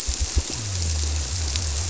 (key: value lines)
label: biophony
recorder: SoundTrap 300